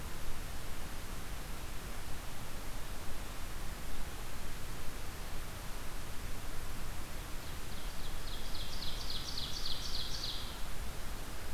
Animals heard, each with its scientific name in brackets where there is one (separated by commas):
Ovenbird (Seiurus aurocapilla), Eastern Wood-Pewee (Contopus virens)